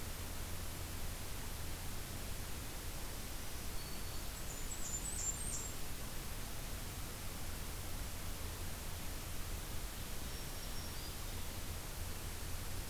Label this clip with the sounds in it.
Black-throated Green Warbler, Blackburnian Warbler, Ovenbird